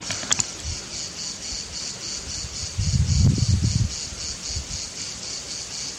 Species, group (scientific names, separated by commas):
Cicada orni, Cicadidae